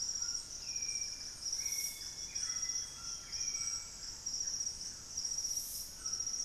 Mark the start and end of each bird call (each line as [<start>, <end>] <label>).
[0.00, 4.17] Hauxwell's Thrush (Turdus hauxwelli)
[0.00, 5.27] Thrush-like Wren (Campylorhynchus turdinus)
[0.00, 6.44] Buff-breasted Wren (Cantorchilus leucotis)
[0.00, 6.44] Golden-crowned Spadebill (Platyrinchus coronatus)
[0.00, 6.44] White-throated Toucan (Ramphastos tucanus)
[1.07, 4.07] Amazonian Grosbeak (Cyanoloxia rothschildii)